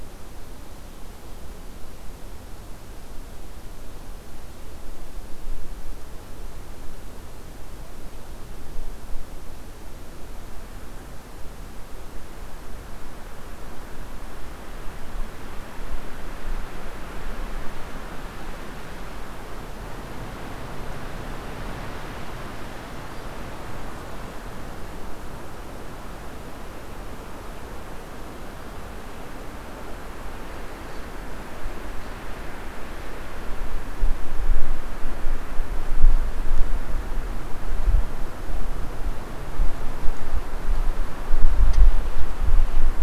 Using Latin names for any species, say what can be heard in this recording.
forest ambience